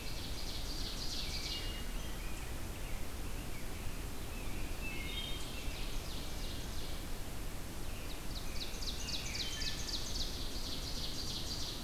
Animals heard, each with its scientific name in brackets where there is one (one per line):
American Robin (Turdus migratorius)
Ovenbird (Seiurus aurocapilla)
Wood Thrush (Hylocichla mustelina)